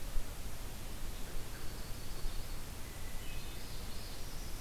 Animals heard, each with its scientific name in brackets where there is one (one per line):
Northern Parula (Setophaga americana)
Yellow-rumped Warbler (Setophaga coronata)